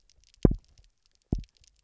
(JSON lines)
{"label": "biophony, double pulse", "recorder": "SoundTrap 300"}